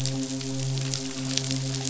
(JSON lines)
{"label": "biophony, midshipman", "recorder": "SoundTrap 500"}